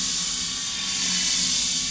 {"label": "anthrophony, boat engine", "recorder": "SoundTrap 500"}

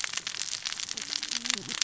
{"label": "biophony, cascading saw", "recorder": "SoundTrap 600 or HydroMoth"}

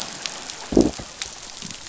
{"label": "biophony, growl", "recorder": "SoundTrap 500"}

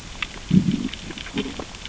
{"label": "biophony, growl", "recorder": "SoundTrap 600 or HydroMoth"}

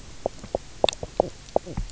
{"label": "biophony, knock croak", "recorder": "SoundTrap 300"}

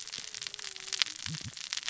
{"label": "biophony, cascading saw", "recorder": "SoundTrap 600 or HydroMoth"}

